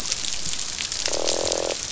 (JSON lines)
{"label": "biophony, croak", "recorder": "SoundTrap 500"}